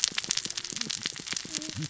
{"label": "biophony, cascading saw", "recorder": "SoundTrap 600 or HydroMoth"}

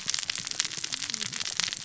{"label": "biophony, cascading saw", "recorder": "SoundTrap 600 or HydroMoth"}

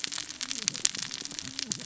{"label": "biophony, cascading saw", "recorder": "SoundTrap 600 or HydroMoth"}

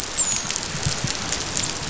{"label": "biophony, dolphin", "recorder": "SoundTrap 500"}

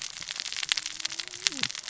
{"label": "biophony, cascading saw", "recorder": "SoundTrap 600 or HydroMoth"}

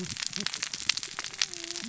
{"label": "biophony, cascading saw", "recorder": "SoundTrap 600 or HydroMoth"}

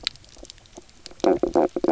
{"label": "biophony", "recorder": "SoundTrap 300"}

